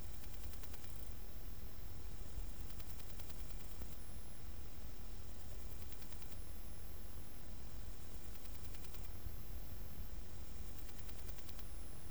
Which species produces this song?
Parnassiana tymphrestos